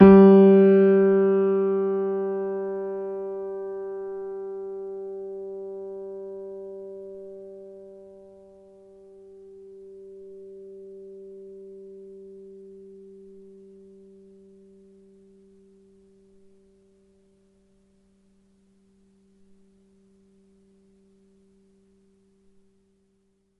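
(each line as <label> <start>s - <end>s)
A piano note is sustained. 0.0s - 6.0s
A piano sustaining the note C. 0.0s - 6.0s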